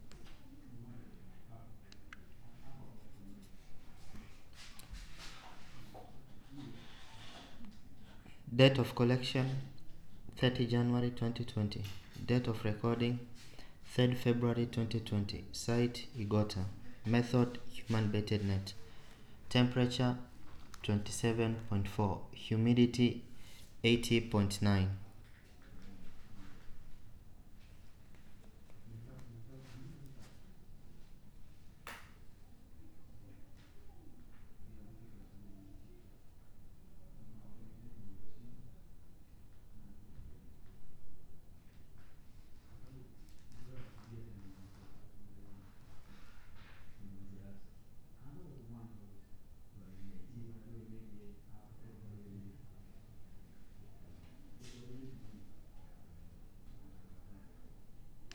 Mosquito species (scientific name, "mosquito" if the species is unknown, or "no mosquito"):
no mosquito